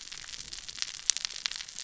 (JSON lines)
{"label": "biophony, cascading saw", "recorder": "SoundTrap 600 or HydroMoth"}